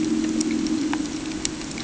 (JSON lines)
{"label": "anthrophony, boat engine", "recorder": "HydroMoth"}